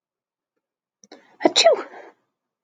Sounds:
Sneeze